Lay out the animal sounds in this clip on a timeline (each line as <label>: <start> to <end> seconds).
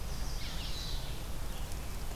Chestnut-sided Warbler (Setophaga pensylvanica): 0.0 to 1.1 seconds
Red-eyed Vireo (Vireo olivaceus): 0.0 to 2.2 seconds